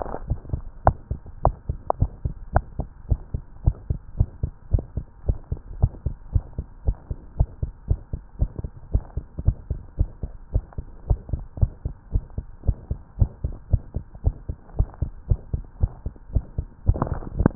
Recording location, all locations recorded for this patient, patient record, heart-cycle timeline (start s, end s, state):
tricuspid valve (TV)
aortic valve (AV)+pulmonary valve (PV)+tricuspid valve (TV)+mitral valve (MV)
#Age: Child
#Sex: Female
#Height: 118.0 cm
#Weight: 21.1 kg
#Pregnancy status: False
#Murmur: Present
#Murmur locations: aortic valve (AV)+mitral valve (MV)+pulmonary valve (PV)+tricuspid valve (TV)
#Most audible location: pulmonary valve (PV)
#Systolic murmur timing: Early-systolic
#Systolic murmur shape: Plateau
#Systolic murmur grading: II/VI
#Systolic murmur pitch: Medium
#Systolic murmur quality: Harsh
#Diastolic murmur timing: nan
#Diastolic murmur shape: nan
#Diastolic murmur grading: nan
#Diastolic murmur pitch: nan
#Diastolic murmur quality: nan
#Outcome: Abnormal
#Campaign: 2015 screening campaign
0.00	0.70	unannotated
0.70	0.82	diastole
0.82	0.98	S1
0.98	1.10	systole
1.10	1.20	S2
1.20	1.42	diastole
1.42	1.56	S1
1.56	1.68	systole
1.68	1.80	S2
1.80	1.98	diastole
1.98	2.12	S1
2.12	2.24	systole
2.24	2.36	S2
2.36	2.52	diastole
2.52	2.66	S1
2.66	2.78	systole
2.78	2.90	S2
2.90	3.08	diastole
3.08	3.22	S1
3.22	3.34	systole
3.34	3.44	S2
3.44	3.62	diastole
3.62	3.76	S1
3.76	3.88	systole
3.88	4.00	S2
4.00	4.16	diastole
4.16	4.28	S1
4.28	4.42	systole
4.42	4.54	S2
4.54	4.72	diastole
4.72	4.86	S1
4.86	4.96	systole
4.96	5.06	S2
5.06	5.24	diastole
5.24	5.40	S1
5.40	5.52	systole
5.52	5.62	S2
5.62	5.76	diastole
5.76	5.92	S1
5.92	6.02	systole
6.02	6.16	S2
6.16	6.32	diastole
6.32	6.44	S1
6.44	6.58	systole
6.58	6.66	S2
6.66	6.84	diastole
6.84	6.96	S1
6.96	7.10	systole
7.10	7.20	S2
7.20	7.36	diastole
7.36	7.50	S1
7.50	7.62	systole
7.62	7.72	S2
7.72	7.86	diastole
7.86	8.00	S1
8.00	8.12	systole
8.12	8.22	S2
8.22	8.38	diastole
8.38	8.50	S1
8.50	8.62	systole
8.62	8.72	S2
8.72	8.90	diastole
8.90	9.04	S1
9.04	9.16	systole
9.16	9.26	S2
9.26	9.42	diastole
9.42	9.58	S1
9.58	9.70	systole
9.70	9.82	S2
9.82	9.96	diastole
9.96	10.10	S1
10.10	10.23	systole
10.23	10.30	S2
10.30	10.52	diastole
10.52	10.64	S1
10.64	10.77	systole
10.77	10.88	S2
10.88	11.06	diastole
11.06	11.20	S1
11.20	11.32	systole
11.32	11.46	S2
11.46	11.60	diastole
11.60	11.74	S1
11.74	11.84	systole
11.84	11.94	S2
11.94	12.12	diastole
12.12	12.24	S1
12.24	12.37	systole
12.37	12.46	S2
12.46	12.64	diastole
12.64	12.76	S1
12.76	12.90	systole
12.90	13.00	S2
13.00	13.18	diastole
13.18	13.32	S1
13.32	13.43	systole
13.43	13.56	S2
13.56	13.72	diastole
13.72	13.84	S1
13.84	13.94	systole
13.94	14.06	S2
14.06	14.24	diastole
14.24	14.36	S1
14.36	14.48	systole
14.48	14.58	S2
14.58	14.76	diastole
14.76	14.88	S1
14.88	15.00	systole
15.00	15.14	S2
15.14	15.29	diastole
15.29	15.40	S1
15.40	15.52	systole
15.52	15.64	S2
15.64	15.80	diastole
15.80	15.94	S1
15.94	16.04	systole
16.04	16.16	S2
16.16	16.32	diastole
16.32	16.44	S1
16.44	16.57	systole
16.57	16.68	S2
16.68	16.79	diastole
16.79	17.55	unannotated